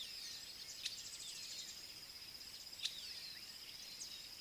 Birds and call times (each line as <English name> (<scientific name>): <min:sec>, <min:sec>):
African Goshawk (Accipiter tachiro): 0:02.8